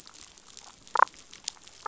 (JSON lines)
{"label": "biophony, damselfish", "recorder": "SoundTrap 500"}